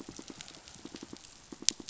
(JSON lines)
{"label": "biophony, pulse", "recorder": "SoundTrap 500"}